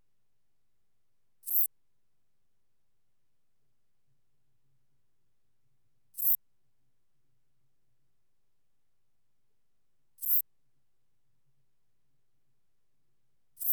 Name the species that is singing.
Eupholidoptera latens